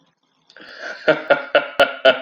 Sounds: Laughter